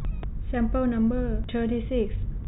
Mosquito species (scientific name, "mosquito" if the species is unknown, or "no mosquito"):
no mosquito